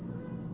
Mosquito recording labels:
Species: Aedes albopictus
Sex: female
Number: one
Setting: insect culture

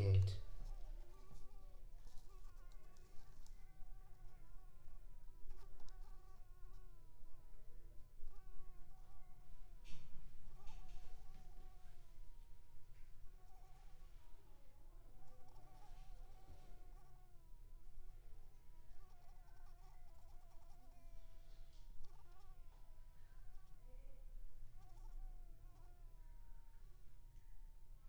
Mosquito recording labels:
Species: Anopheles squamosus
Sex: female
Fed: blood-fed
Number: one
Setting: cup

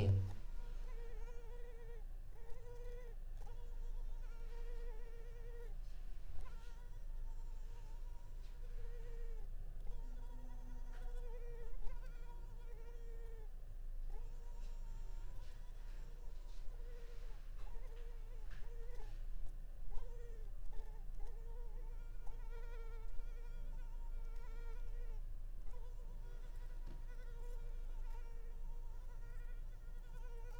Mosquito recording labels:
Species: Culex pipiens complex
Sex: female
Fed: unfed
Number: one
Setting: cup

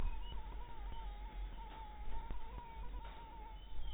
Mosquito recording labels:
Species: mosquito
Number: one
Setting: cup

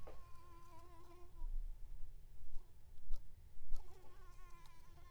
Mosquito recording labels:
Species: Anopheles ziemanni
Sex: female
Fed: unfed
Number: one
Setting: cup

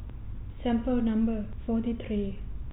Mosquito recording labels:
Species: no mosquito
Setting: cup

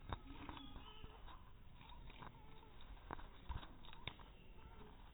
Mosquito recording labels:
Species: mosquito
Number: one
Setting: cup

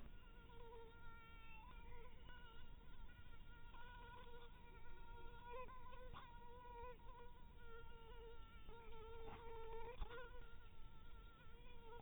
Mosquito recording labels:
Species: mosquito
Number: one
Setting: cup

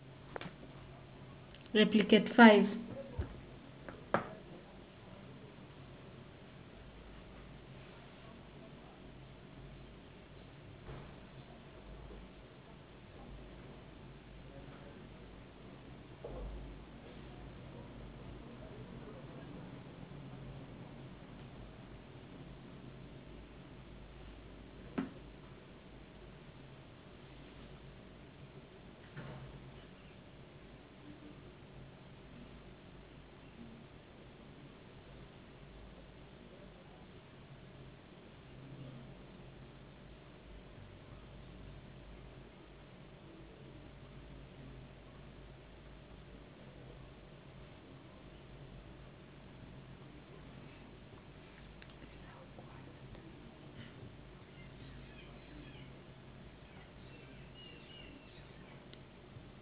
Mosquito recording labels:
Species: no mosquito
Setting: insect culture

